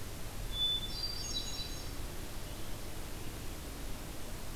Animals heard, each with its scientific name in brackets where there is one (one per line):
Hermit Thrush (Catharus guttatus)